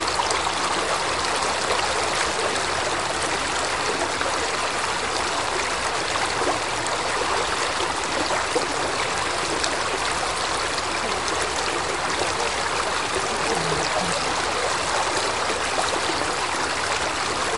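0.0s Steady babbling of a creek. 17.6s

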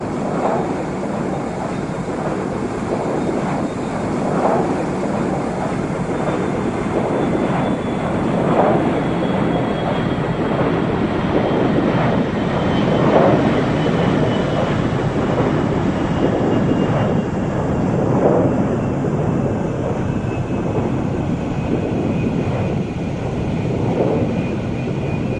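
0.2s The continuous sound of air being displaced by an aircraft is heard. 7.6s
7.8s A high-pitched continuous sound gradually emerges and then fades, resembling air being displaced by an aircraft. 25.1s

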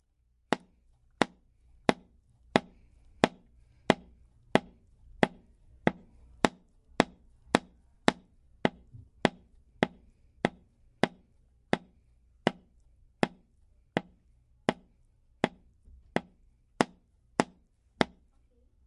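0.0s A nail is being repeatedly hit with a hammer. 18.9s

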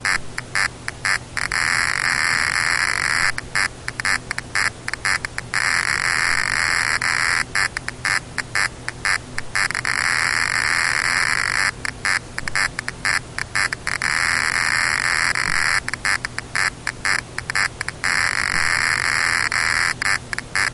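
0.0s A machine generates a shifting buzzing sound nearby. 20.7s
0.1s A rhythmic buzzing sound emitted from a detection machine. 1.5s
1.5s A constant, very frequent rhythmic buzzing sound emitted by a detection machine. 3.4s
3.4s A rhythmic buzzing sound emitted from a detection machine. 5.5s
5.6s A constant, very frequent rhythmic buzzing sound emitted by a detection machine. 7.4s
7.4s A rhythmic buzzing sound emitted from a detection machine. 9.7s
9.7s A constant, very frequent rhythmic buzzing sound emitted by a detection machine. 11.8s
11.8s A rhythmic buzzing sound emitted from a detection machine. 14.0s
14.0s A constant, very frequent rhythmic buzzing sound emitted by a detection machine. 15.9s
15.9s A rhythmic buzzing sound emitted from a detection machine. 18.0s
18.0s A constant, very frequent rhythmic buzzing sound emitted by a detection machine. 20.0s
20.0s A rhythmic buzzing sound emitted from a detection machine. 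20.7s

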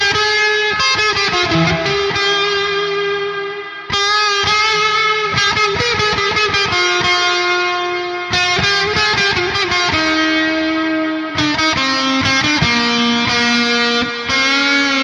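0.0s An electric guitar plays a blues-style riff and solo with a steady rhythm. 15.0s

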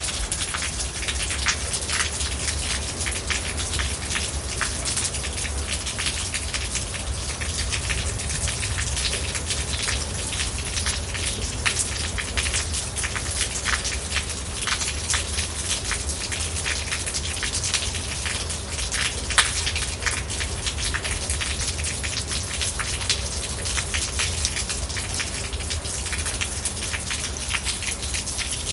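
0.0s Water spurting out rapidly, possibly from rain. 28.7s

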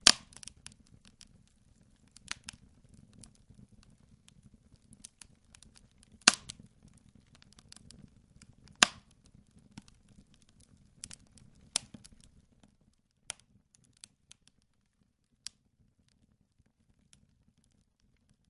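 0.0s Logs crackle in a fire. 18.5s

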